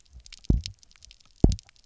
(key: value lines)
label: biophony, double pulse
recorder: SoundTrap 300